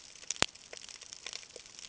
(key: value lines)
label: ambient
recorder: HydroMoth